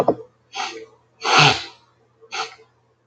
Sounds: Sniff